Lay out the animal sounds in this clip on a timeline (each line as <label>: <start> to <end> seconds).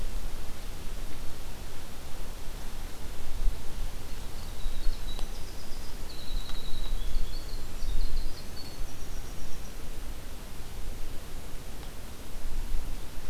Winter Wren (Troglodytes hiemalis): 4.1 to 9.8 seconds